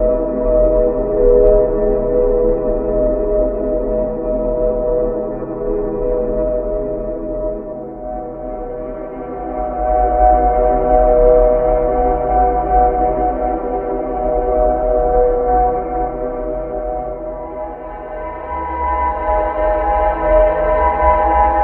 Does this have a melody?
yes